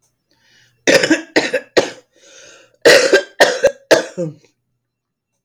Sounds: Cough